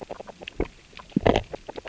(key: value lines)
label: biophony, grazing
recorder: SoundTrap 600 or HydroMoth